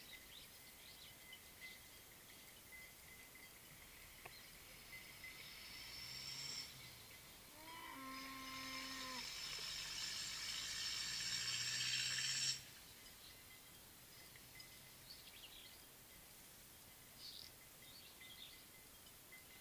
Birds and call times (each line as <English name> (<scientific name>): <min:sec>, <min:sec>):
Red-rumped Swallow (Cecropis daurica): 0:17.4